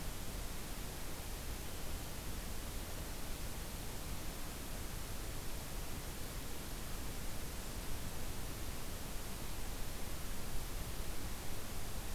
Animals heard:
forest ambience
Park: Acadia National Park